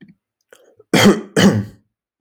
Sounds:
Cough